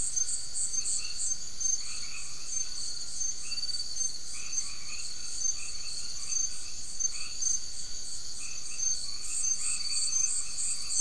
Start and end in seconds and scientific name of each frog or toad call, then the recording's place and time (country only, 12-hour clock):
0.0	11.0	Boana albomarginata
0.7	1.0	Leptodactylus latrans
Brazil, 9:15pm